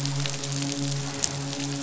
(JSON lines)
{"label": "biophony, midshipman", "recorder": "SoundTrap 500"}